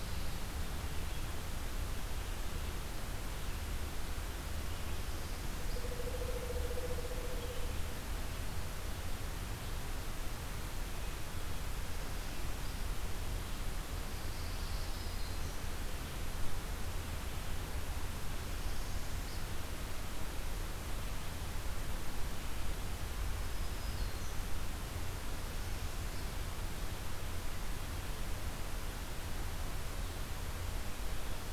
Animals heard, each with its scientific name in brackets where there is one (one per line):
Black-throated Green Warbler (Setophaga virens)
Northern Parula (Setophaga americana)
Pine Warbler (Setophaga pinus)